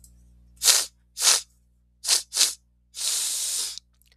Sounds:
Sniff